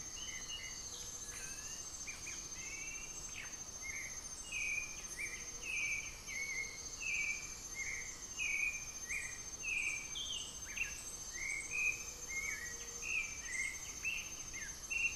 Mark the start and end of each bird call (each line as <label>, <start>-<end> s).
Black-faced Antthrush (Formicarius analis), 0.0-0.9 s
White-winged Becard (Pachyramphus polychopterus), 0.0-6.6 s
Gray-fronted Dove (Leptotila rufaxilla), 0.0-15.2 s
Undulated Tinamou (Crypturellus undulatus), 11.4-13.7 s
White-winged Becard (Pachyramphus polychopterus), 12.5-15.2 s